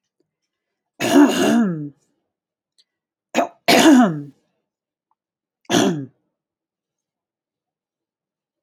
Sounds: Throat clearing